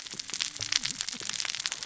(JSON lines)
{"label": "biophony, cascading saw", "recorder": "SoundTrap 600 or HydroMoth"}